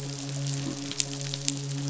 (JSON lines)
{"label": "biophony, midshipman", "recorder": "SoundTrap 500"}